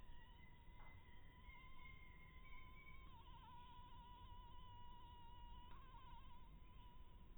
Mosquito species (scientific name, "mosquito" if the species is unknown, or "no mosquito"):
mosquito